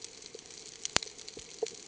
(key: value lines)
label: ambient
recorder: HydroMoth